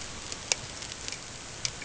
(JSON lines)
{"label": "ambient", "recorder": "HydroMoth"}